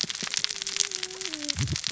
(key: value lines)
label: biophony, cascading saw
recorder: SoundTrap 600 or HydroMoth